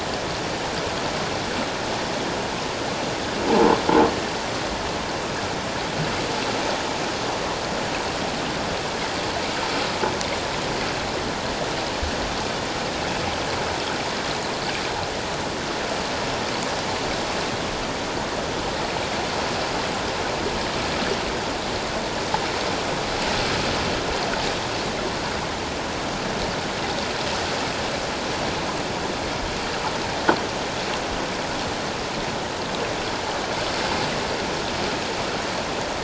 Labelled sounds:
3.5	3.8	croaking sound likely from a nearby submerged object, 0.78 to 1.1 kHz

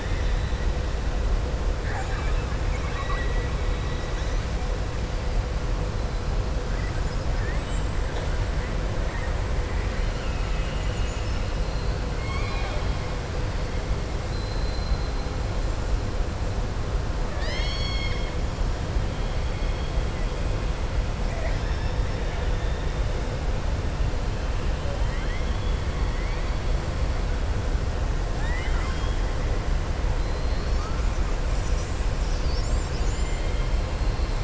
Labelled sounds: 2.6	3.4	killer whale, southern resident, 1.1 to 4.3 kHz
7.3	7.8	killer whale, southern resident, 1.5 to 3.9 kHz
9.7	11.4	killer whale, southern resident, 1.9 to 3.2 kHz
12.1	13.0	killer whale, southern resident, 0.63 to 5.4 kHz
17.2	18.3	killer whale, southern resident, 1.2 to 7.5 kHz
21.2	22.0	killer whale, southern resident, 0.64 to 5.5 kHz
25.0	25.8	killer whale, southern resident, 1.1 to 4.2 kHz
28.3	29.2	killer whale, southern resident, 0.86 to 3.9 kHz

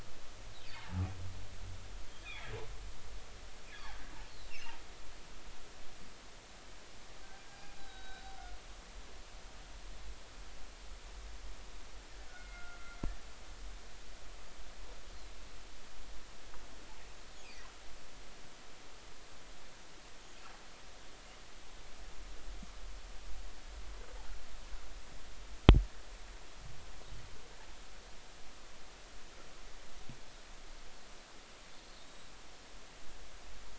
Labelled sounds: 2.2	2.5	humpback whale, 1.8 to 3.7 kHz
3.7	4.8	humpback whale, 2.5 to 3.6 kHz
7.5	8.3	humpback whale, 0.80 to 4.0 kHz
12.3	13.0	humpback whale, 1.3 to 2.2 kHz
32.1	32.3	humpback whale, 3.7 to 4.0 kHz

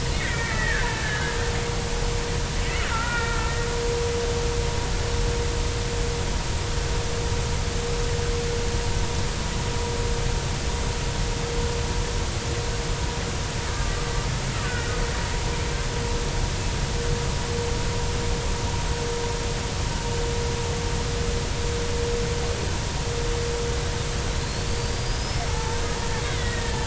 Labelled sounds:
0.2	1.5	killer whale, Bigg's (transient), 1.2 to 2.4 kHz
2.9	3.5	killer whale, Bigg's (transient), 0.86 to 2.4 kHz
14.6	15.0	killer whale, Bigg's (transient), 1.4 to 1.5 kHz
24.4	26.8	killer whale, Bigg's (transient), 0.80 to 5.7 kHz

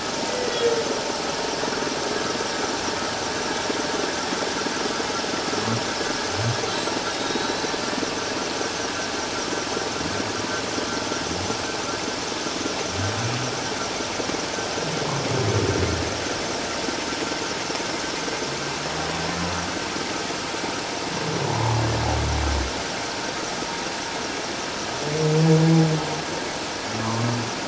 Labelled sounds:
0.2	0.7	humpback whale, 1.8 to 2.1 kHz
6.7	7.8	humpback whale, 3.7 to 4.1 kHz
21.5	21.8	humpback whale, 0.81 to 1.2 kHz
27.0	27.3	humpback whale, 0.91 to 1.2 kHz

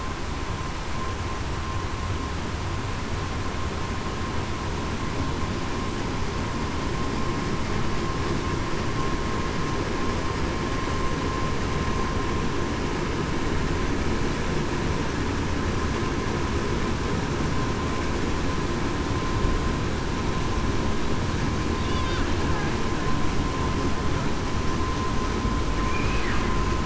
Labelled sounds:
25.9	26.2	humpback whale, 2.3 to 2.6 kHz

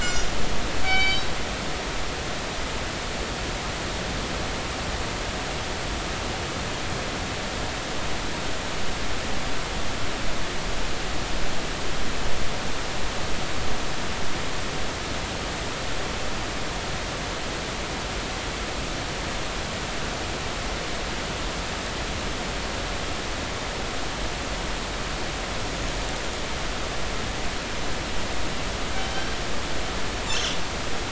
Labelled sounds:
0.0	0.3	killer whale, northern resident, 5.0 to 6.0 kHz
0.8	1.3	killer whale, northern resident, 1.5 to 5.5 kHz
29.0	29.3	killer whale, northern resident, 3.0 to 3.2 kHz
30.3	30.5	killer whale, northern resident, 2.6 to 2.8 kHz

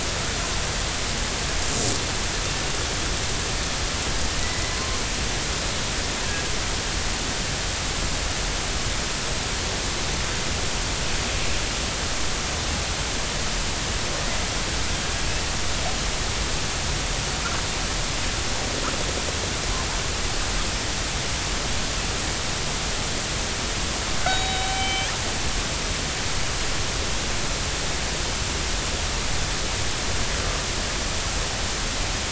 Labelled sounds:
4.4	4.8	killer whale, northern resident, G clan, 1.9 to 2.1 kHz
24.3	25.1	killer whale, northern resident, G clan, 2.2 to 3.9 kHz

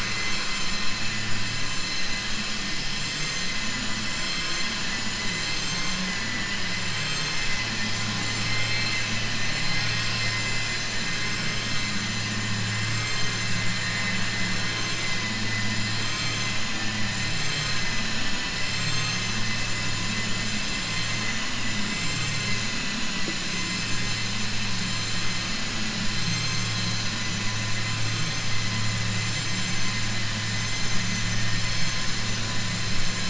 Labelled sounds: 6.0	6.6	vessel noise, 1.6 to 3.2 kHz
6.9	8.5	vessel noise, 1.3 to 7.8 kHz
24.8	25.3	vessel noise, 6.2 to 7.4 kHz

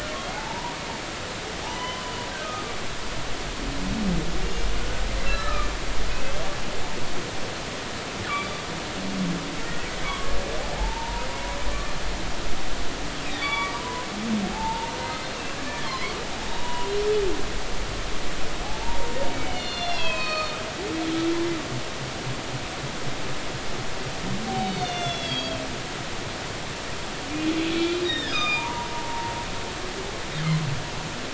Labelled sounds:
1.6	2.7	humpback whale, 0.80 to 3.1 kHz
5.3	5.7	humpback whale, 1.1 to 4.1 kHz
10.0	10.3	humpback whale, 0.93 to 1.2 kHz
10.8	11.3	humpback whale, 0.80 to 1.0 kHz
13.3	14.1	humpback whale, 0.90 to 3.9 kHz
14.5	14.9	humpback whale, 0.80 to 0.99 kHz
15.9	16.9	humpback whale, 0.90 to 2.9 kHz
18.6	20.6	humpback whale, 0.80 to 5.7 kHz
24.6	25.6	humpback whale, 2.0 to 6.6 kHz
27.7	29.3	humpback whale, 0.80 to 5.7 kHz

